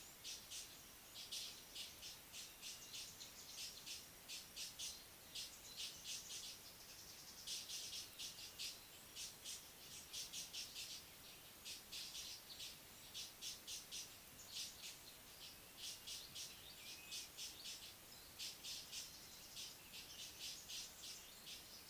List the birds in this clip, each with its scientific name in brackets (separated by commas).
Blue-naped Mousebird (Urocolius macrourus), Mocking Cliff-Chat (Thamnolaea cinnamomeiventris)